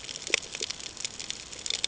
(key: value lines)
label: ambient
recorder: HydroMoth